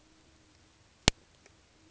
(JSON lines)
{"label": "ambient", "recorder": "HydroMoth"}